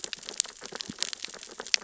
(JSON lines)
{"label": "biophony, sea urchins (Echinidae)", "recorder": "SoundTrap 600 or HydroMoth"}